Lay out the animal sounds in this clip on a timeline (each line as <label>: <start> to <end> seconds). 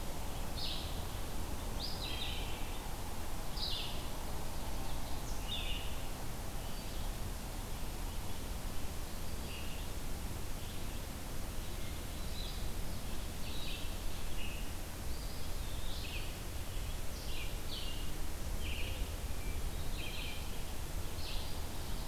Red-eyed Vireo (Vireo olivaceus): 0.0 to 22.1 seconds
Ovenbird (Seiurus aurocapilla): 4.3 to 5.3 seconds
Eastern Wood-Pewee (Contopus virens): 15.0 to 16.5 seconds